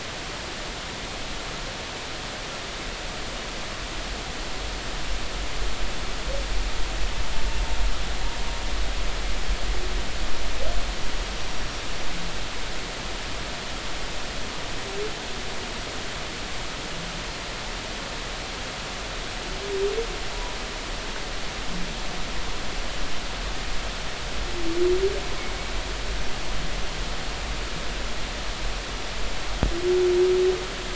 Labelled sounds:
11.5	11.8	humpback whale, 5.6 to 5.7 kHz

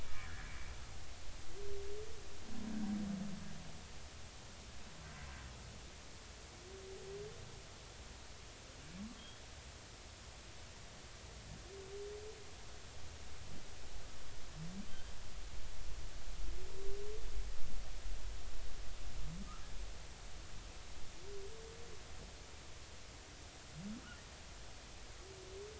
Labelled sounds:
0.0	0.5	humpback whale, 1.3 to 2.5 kHz
9.2	9.4	humpback whale, 3.1 to 3.5 kHz

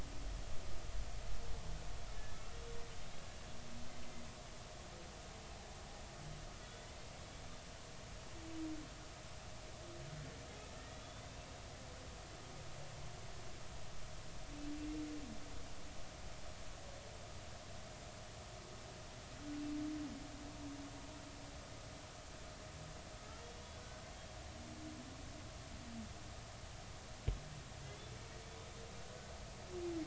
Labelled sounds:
2.3	2.6	humpback whale, 1.3 to 1.4 kHz
6.6	6.9	humpback whale, 3.3 to 3.5 kHz
10.8	11.3	humpback whale, 1.8 to 3.6 kHz
23.8	24.0	humpback whale, 1.4 to 1.6 kHz

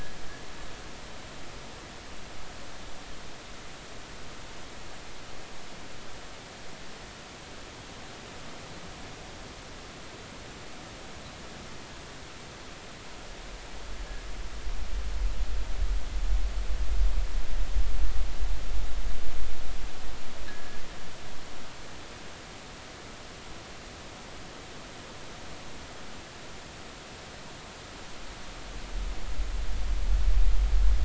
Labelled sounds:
20.5	20.8	fishing gear, 1.6 to 1.8 kHz

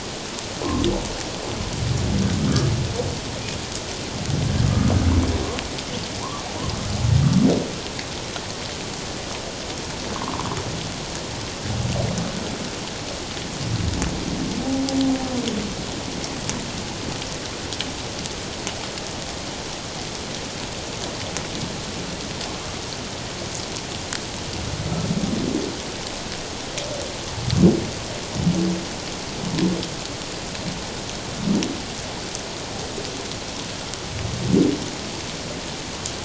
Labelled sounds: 10.2	10.5	humpback whale, 0.88 to 1.3 kHz

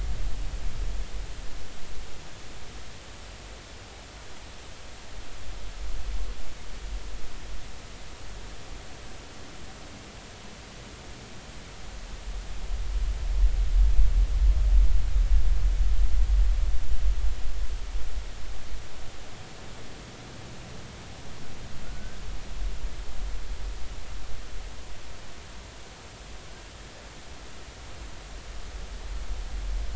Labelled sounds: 21.8	22.2	humpback whale, 1.3 to 1.6 kHz

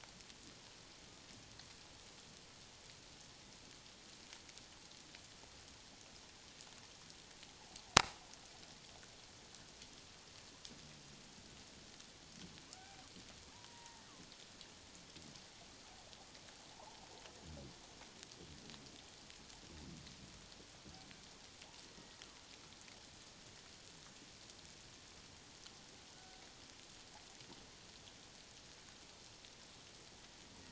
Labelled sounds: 12.8	14.0	killer whale, Bigg's (transient), 0.78 to 1.9 kHz
16.8	17.0	humpback whale, 0.78 to 1.1 kHz
26.1	26.4	killer whale, Bigg's (transient), 1.4 to 1.6 kHz

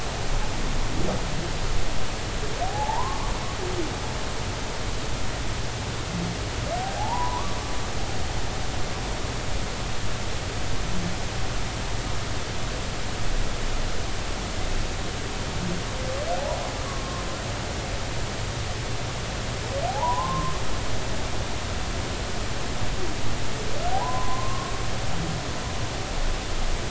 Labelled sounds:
2.6	3.2	humpback whale, 0.80 to 1.2 kHz
7.0	7.6	humpback whale, 0.80 to 1.2 kHz
16.8	17.2	humpback whale, 0.99 to 1.2 kHz
19.9	20.6	humpback whale, 0.80 to 1.2 kHz
23.9	24.8	humpback whale, 0.80 to 1.2 kHz

